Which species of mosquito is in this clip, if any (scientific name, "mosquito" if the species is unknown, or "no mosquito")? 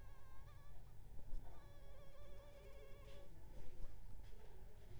mosquito